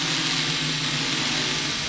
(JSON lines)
{"label": "anthrophony, boat engine", "recorder": "SoundTrap 500"}